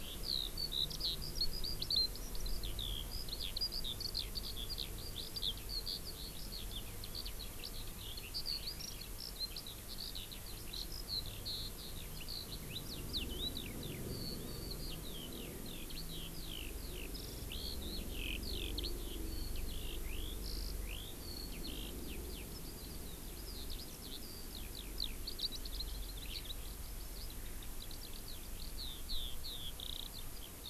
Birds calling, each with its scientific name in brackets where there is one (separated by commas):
Eurasian Skylark (Alauda arvensis)